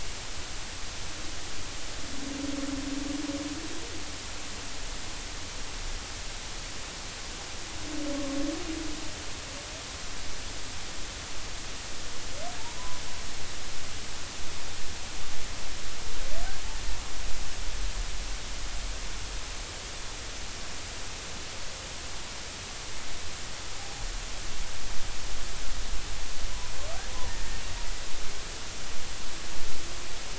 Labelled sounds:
12.8	13.0	humpback whale, 0.96 to 1.1 kHz
23.8	24.1	humpback whale, 0.80 to 0.86 kHz

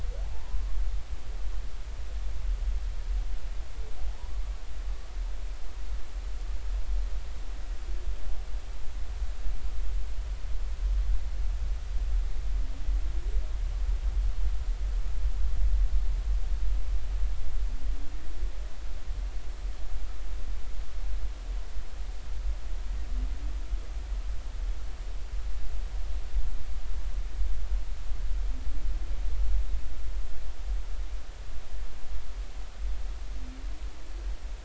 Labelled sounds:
0.3	0.6	humpback whale, 0.83 to 1.1 kHz

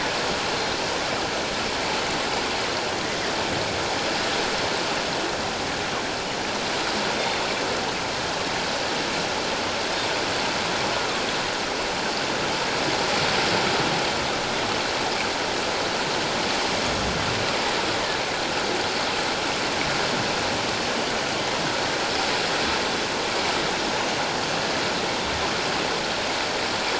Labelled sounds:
10.9	11.2	killer whale, northern resident, G clan, 1.1 to 1.5 kHz

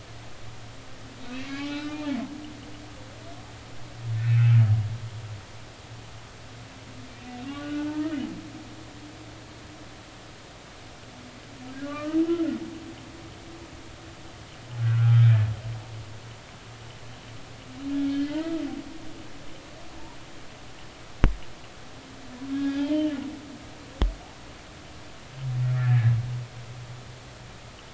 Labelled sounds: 1.4	2.0	humpback whale, 0.80 to 2.7 kHz
4.2	4.6	humpback whale, 2.5 to 2.7 kHz
7.1	8.1	humpback whale, 0.83 to 3.0 kHz
11.9	12.2	humpback whale, 1.1 to 2.0 kHz
14.8	15.3	humpback whale, 1.2 to 3.3 kHz
17.9	18.5	humpback whale, 1.4 to 3.6 kHz
22.5	23.2	humpback whale, 0.80 to 3.8 kHz
25.8	26.1	humpback whale, 1.6 to 2.0 kHz

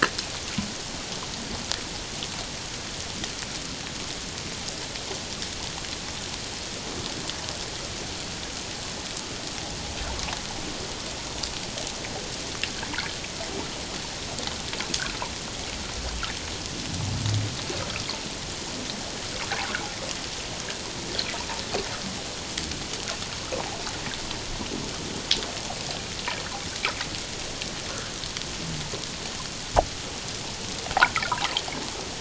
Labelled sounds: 31.2	31.5	water noise, 0.78 to 1.5 kHz

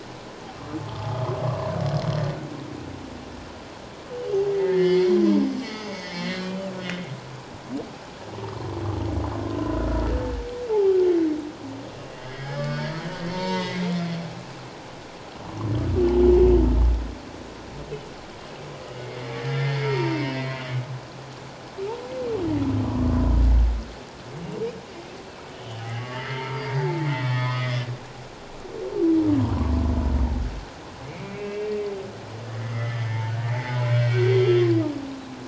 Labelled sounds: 4.5	5.2	humpback whale, 1.7 to 4.5 kHz
5.6	6.5	humpback whale, 1.7 to 6.7 kHz
10.7	11.0	humpback whale, 0.78 to 0.91 kHz
12.0	14.0	humpback whale, 0.88 to 8.0 kHz
18.9	20.6	humpback whale, 0.88 to 2.3 kHz
25.5	27.7	humpback whale, 0.78 to 3.4 kHz
31.0	31.8	humpback whale, 2.0 to 2.8 kHz
32.4	33.0	humpback whale, 1.7 to 2.2 kHz
33.8	34.7	humpback whale, 2.2 to 3.4 kHz

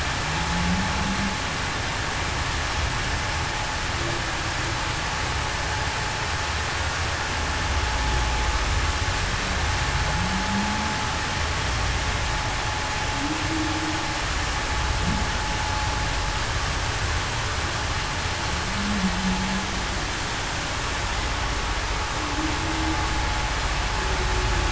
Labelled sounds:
0.5	0.9	humpback whale, 0.19 to 0.21 kHz
10.5	10.9	humpback whale, 0.19 to 0.30 kHz
18.6	19.1	humpback whale, 0.19 to 0.30 kHz
22.2	22.5	humpback whale, 0.26 to 0.33 kHz

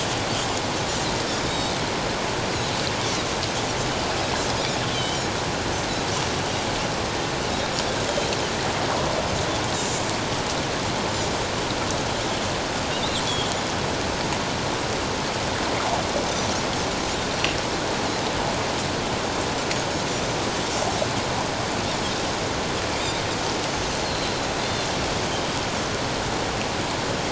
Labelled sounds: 1.5	1.7	Pacific white-sided dolphin, 3.6 to 3.8 kHz
4.9	5.2	Pacific white-sided dolphin, 2.9 to 4.0 kHz
9.8	10.0	Pacific white-sided dolphin, 7.0 to 7.5 kHz
23.7	24.4	Pacific white-sided dolphin, 4.0 to 6.4 kHz

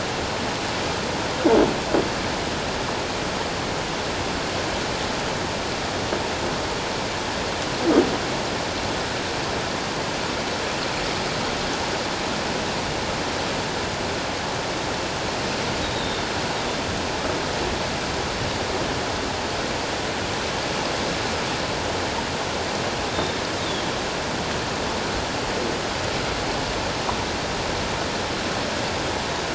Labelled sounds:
15.9	16.2	Pacific white-sided dolphin, 3.5 to 3.9 kHz
23.1	23.4	Pacific white-sided dolphin, 3.5 to 3.7 kHz

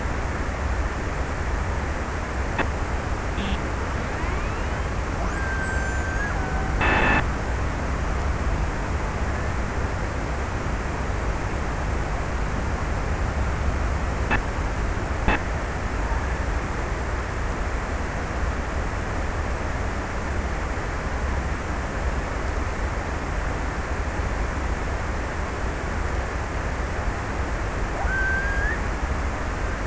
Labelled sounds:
5.1	6.5	killer whale, Bigg's (transient), 1.0 to 1.9 kHz
27.6	29.8	killer whale, Bigg's (transient), 1.1 to 2.0 kHz

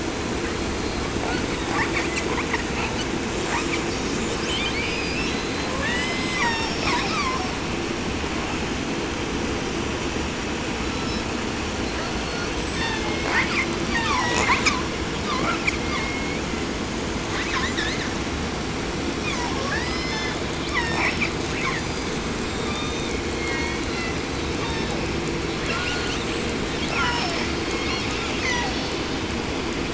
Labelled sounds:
0.0	5.7	killer whale, 0.42 to 8.0 kHz
5.8	7.6	killer whale, southern resident, 0.47 to 8.0 kHz
10.7	11.4	killer whale, 0.91 to 8.0 kHz
11.8	12.6	killer whale, 0.79 to 8.0 kHz
12.6	13.7	killer whale, southern resident, call S36, 0.46 to 8.0 kHz
13.8	16.9	killer whale, southern resident, 0.43 to 8.0 kHz
17.2	18.3	killer whale, southern resident, 0.70 to 8.0 kHz
19.1	21.4	killer whale, southern resident, 0.49 to 8.0 kHz
21.5	23.3	killer whale, 0.75 to 8.0 kHz
23.2	25.4	killer whale, southern resident, 0.63 to 8.0 kHz
25.5	26.5	killer whale, 0.75 to 8.0 kHz
26.6	29.0	killer whale, southern resident, call S36, 0.52 to 6.7 kHz

